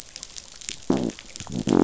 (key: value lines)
label: biophony
recorder: SoundTrap 500